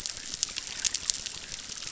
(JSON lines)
{"label": "biophony, chorus", "recorder": "SoundTrap 600"}